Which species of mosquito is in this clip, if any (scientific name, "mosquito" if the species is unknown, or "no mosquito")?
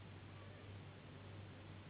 Anopheles gambiae s.s.